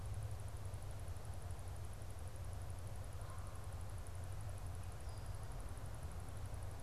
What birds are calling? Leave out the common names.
Branta canadensis